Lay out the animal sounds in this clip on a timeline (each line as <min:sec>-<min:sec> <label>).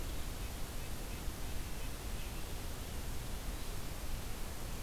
0:00.0-0:02.4 Red-breasted Nuthatch (Sitta canadensis)